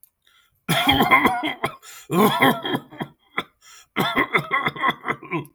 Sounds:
Cough